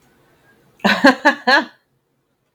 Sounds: Laughter